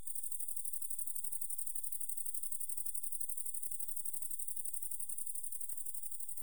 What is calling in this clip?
Oecanthus dulcisonans, an orthopteran